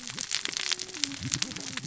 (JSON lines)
{"label": "biophony, cascading saw", "recorder": "SoundTrap 600 or HydroMoth"}